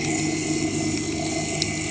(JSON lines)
{"label": "anthrophony, boat engine", "recorder": "HydroMoth"}